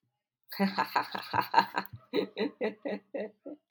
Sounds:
Laughter